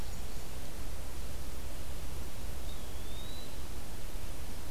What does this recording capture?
Eastern Wood-Pewee